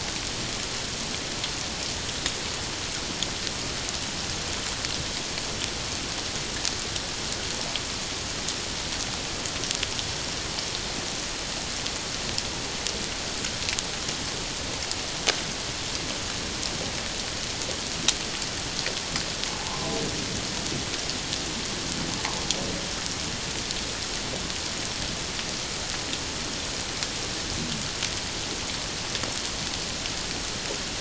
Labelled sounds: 19.5	19.9	humpback whale, 0.78 to 1.1 kHz

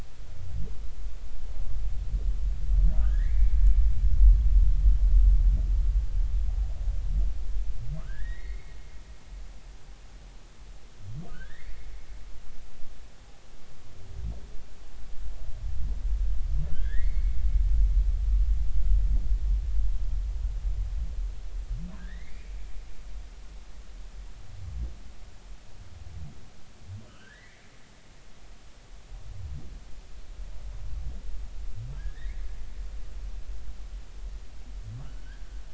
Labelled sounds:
3.0	3.5	humpback whale, 1.2 to 2.4 kHz
8.0	8.7	humpback whale, 1.4 to 4.5 kHz
11.3	11.8	humpback whale, 1.4 to 2.5 kHz
16.7	17.4	humpback whale, 1.5 to 4.5 kHz
22.0	22.5	humpback whale, 1.5 to 2.5 kHz
27.1	27.6	humpback whale, 1.2 to 2.4 kHz
32.0	32.4	humpback whale, 1.5 to 2.3 kHz
35.0	35.3	humpback whale, 2.8 to 3.1 kHz

